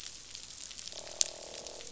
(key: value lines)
label: biophony, croak
recorder: SoundTrap 500